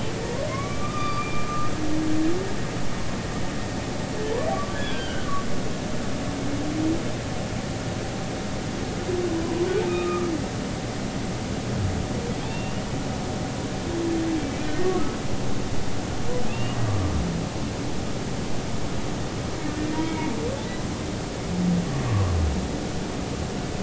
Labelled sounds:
0.5	1.7	humpback whale, 0.99 to 4.8 kHz
4.5	5.3	humpback whale, 1.1 to 3.5 kHz
9.9	10.3	humpback whale, 1.1 to 1.3 kHz
12.4	12.8	humpback whale, 2.4 to 3.7 kHz
16.4	17.1	humpback whale, 1.1 to 2.9 kHz
20.0	20.3	humpback whale, 2.1 to 2.3 kHz
23.1	23.3	humpback whale, 0.99 to 1.2 kHz

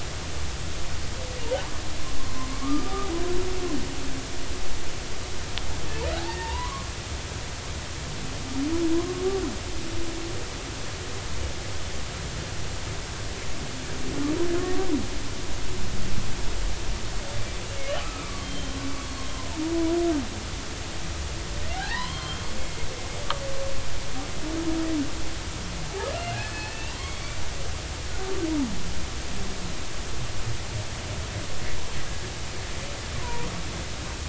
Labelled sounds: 2.5	3.1	humpback whale, 1.1 to 1.3 kHz
6.2	6.9	humpback whale, 0.86 to 1.9 kHz
14.6	14.9	humpback whale, 1.0 to 1.2 kHz
18.2	18.8	humpback whale, 1.1 to 3.2 kHz
21.7	22.9	humpback whale, 0.80 to 3.3 kHz
26.1	27.4	humpback whale, 0.93 to 5.2 kHz
33.1	33.5	humpback whale, 0.90 to 1.1 kHz

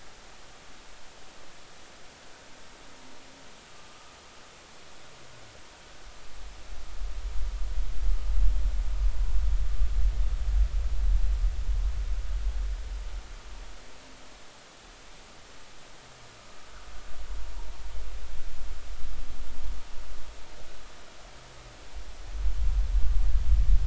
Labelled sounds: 3.7	4.0	vessel noise, 1.2 to 1.3 kHz

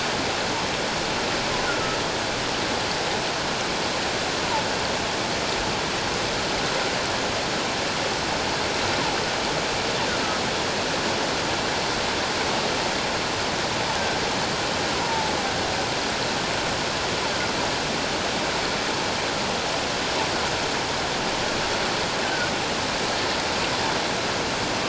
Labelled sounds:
14.9	15.3	killer whale, offshore, call OFF17, 0.81 to 1.1 kHz
22.2	22.5	killer whale, offshore, call OFF17, 1.4 to 1.6 kHz

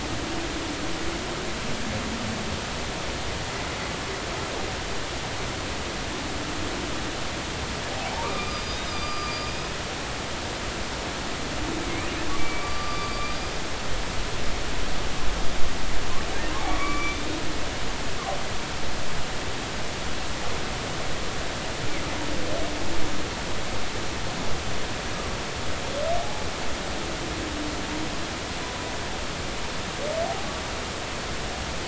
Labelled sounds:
8.1	9.5	humpback whale, 0.83 to 5.0 kHz
12.4	13.6	humpback whale, 1.1 to 4.9 kHz
16.6	17.3	humpback whale, 1.1 to 3.7 kHz
26.2	26.5	humpback whale, 0.80 to 0.90 kHz

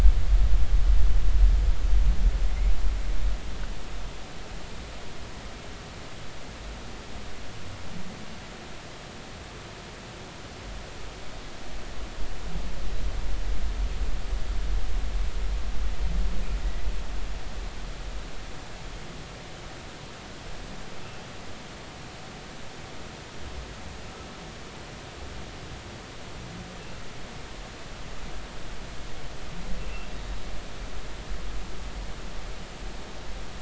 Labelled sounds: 16.6	16.9	humpback whale, 1.9 to 2.0 kHz
29.8	30.1	humpback whale, 2.6 to 2.8 kHz

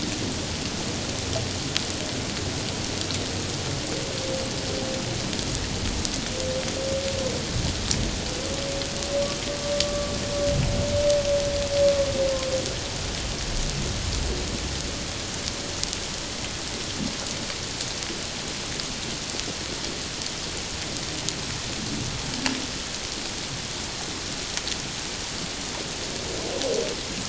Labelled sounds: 9.8	10.1	humpback whale, 1.1 to 1.2 kHz

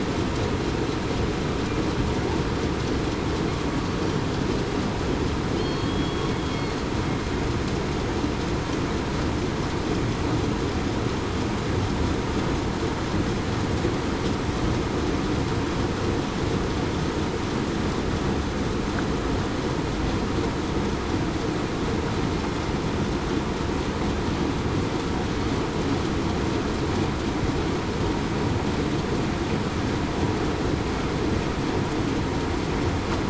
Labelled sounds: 5.6	6.3	killer whale, southern resident, 3.1 to 3.4 kHz

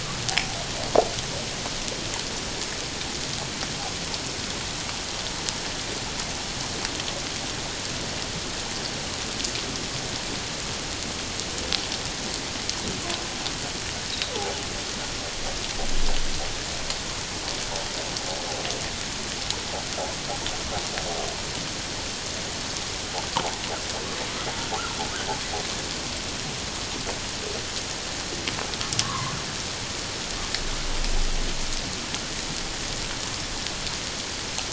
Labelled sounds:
29.0	29.3	humpback whale, 0.91 to 1.3 kHz

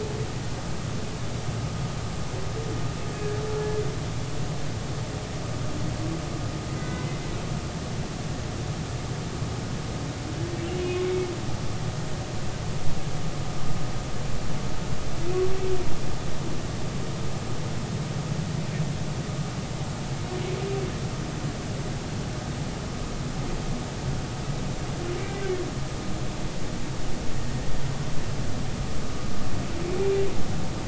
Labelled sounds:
6.8	7.1	humpback whale, 1.95 to 2.05 kHz
10.6	11.3	humpback whale, 2.1 to 2.9 kHz

